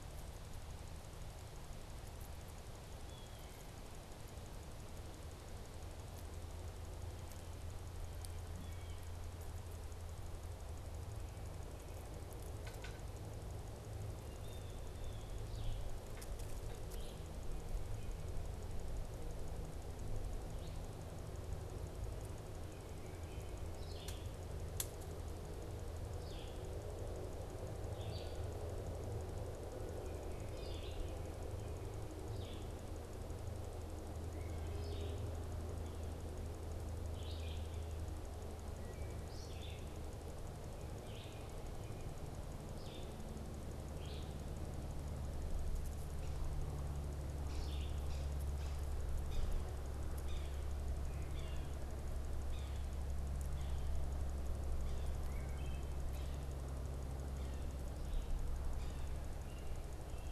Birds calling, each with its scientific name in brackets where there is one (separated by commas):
Wood Thrush (Hylocichla mustelina), Red-eyed Vireo (Vireo olivaceus), Blue Jay (Cyanocitta cristata), Yellow-bellied Sapsucker (Sphyrapicus varius)